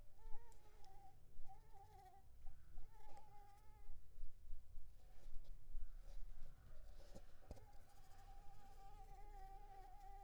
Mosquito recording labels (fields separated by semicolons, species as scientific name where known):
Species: Anopheles arabiensis; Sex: female; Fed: unfed; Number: one; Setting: cup